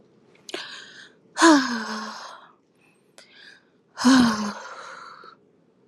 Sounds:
Sigh